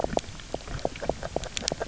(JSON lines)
{"label": "biophony, grazing", "recorder": "SoundTrap 300"}